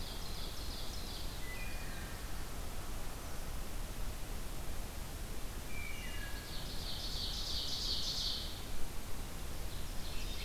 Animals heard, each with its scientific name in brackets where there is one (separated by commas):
Ovenbird (Seiurus aurocapilla), Wood Thrush (Hylocichla mustelina)